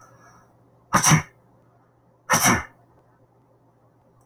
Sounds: Sneeze